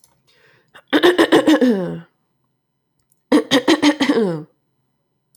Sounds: Throat clearing